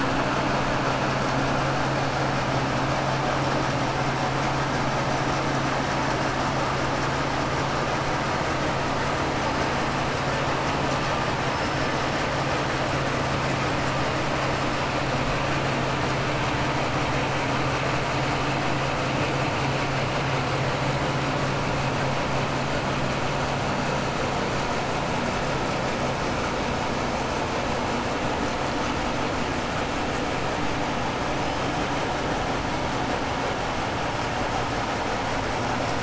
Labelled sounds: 11.4	12.0	killer whale, 4.8 to 5.7 kHz

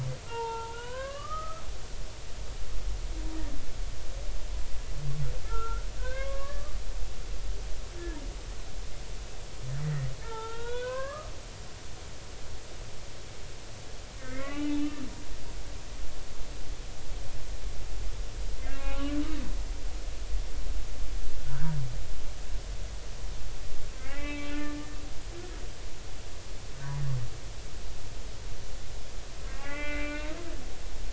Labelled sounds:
0.3	1.6	humpback whale, 0.83 to 3.3 kHz
5.4	6.8	humpback whale, 0.96 to 2.7 kHz
8.0	8.2	humpback whale, 1.6 to 1.9 kHz
9.8	12.3	humpback whale, 0.83 to 3.9 kHz
14.2	15.0	humpback whale, 0.83 to 3.0 kHz
18.6	19.2	humpback whale, 0.99 to 2.2 kHz
21.5	21.8	humpback whale, 1.2 to 1.7 kHz
24.0	25.0	humpback whale, 1.7 to 3.0 kHz
29.5	30.4	humpback whale, 0.80 to 2.7 kHz

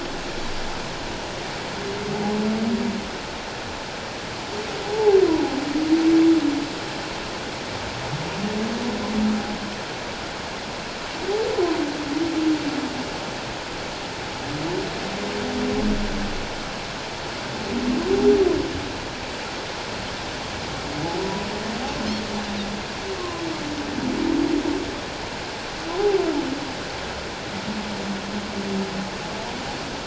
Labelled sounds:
4.8	5.2	humpback whale, 0.78 to 0.91 kHz
23.2	23.4	humpback whale, 0.97 to 1.1 kHz

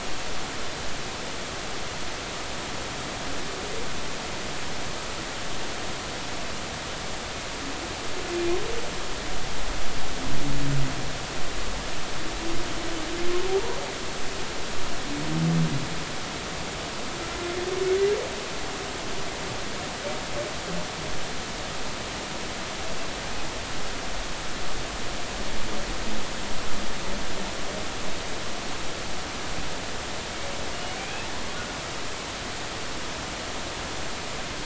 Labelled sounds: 31.0	31.3	humpback whale, 2.3 to 2.7 kHz

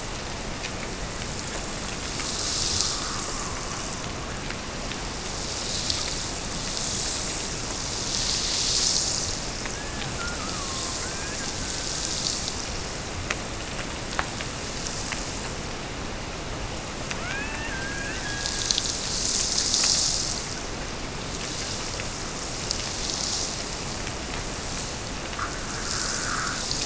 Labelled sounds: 9.7	12.3	killer whale, Bigg's (transient), Gulf of Alaska transient, 0.84 to 2.6 kHz
17.1	19.0	killer whale, Bigg's (transient), Gulf of Alaska transient, 1.1 to 2.9 kHz

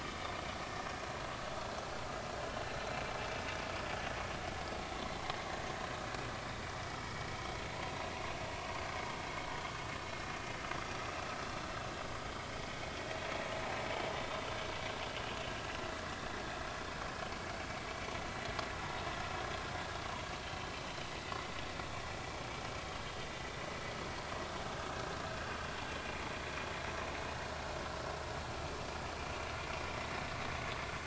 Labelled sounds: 7.0	7.3	vessel noise, 2.2 to 2.3 kHz
9.6	9.8	vessel noise, 1.4 to 1.6 kHz
25.9	26.2	vessel noise, 2.3 to 2.5 kHz
29.8	30.1	vessel noise, 5.2 to 5.5 kHz

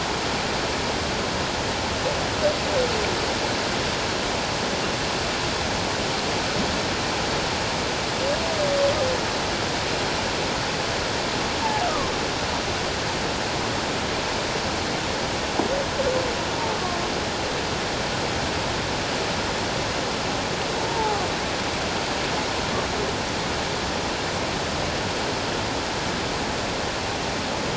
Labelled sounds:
11.6	12.1	humpback whale, 0.78 to 1.4 kHz
20.8	21.2	humpback whale, 0.78 to 0.97 kHz

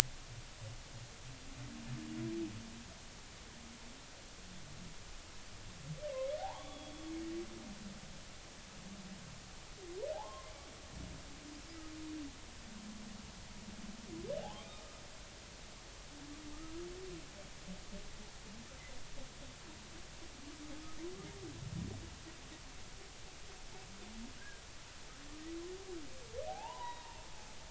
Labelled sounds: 6.1	7.1	humpback whale, 0.80 to 3.5 kHz
10.1	10.5	humpback whale, 0.80 to 1.1 kHz
14.4	14.7	humpback whale, 0.80 to 1.2 kHz
24.4	24.6	humpback whale, 1.4 to 1.7 kHz
26.5	27.2	humpback whale, 0.80 to 4.0 kHz

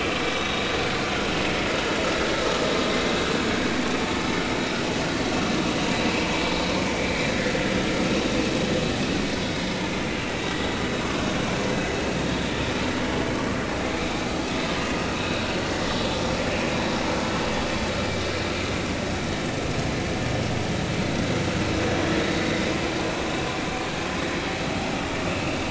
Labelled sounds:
0.3	0.6	vessel noise, 3.6 to 3.9 kHz
7.0	7.3	vessel noise, 1.9 to 2.5 kHz
9.5	9.8	vessel noise, 3.6 to 3.8 kHz
11.0	11.5	vessel noise, 0.99 to 1.2 kHz
13.9	14.2	vessel noise, 2.2 to 2.5 kHz

